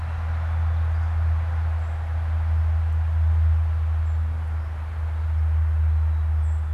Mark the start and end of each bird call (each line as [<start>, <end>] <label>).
[3.80, 6.70] Song Sparrow (Melospiza melodia)